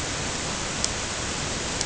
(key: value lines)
label: ambient
recorder: HydroMoth